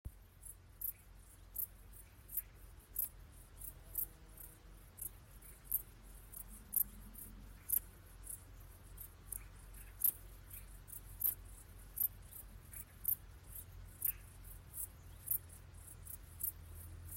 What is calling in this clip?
Pholidoptera griseoaptera, an orthopteran